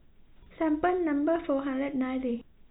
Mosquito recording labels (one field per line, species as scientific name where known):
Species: no mosquito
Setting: cup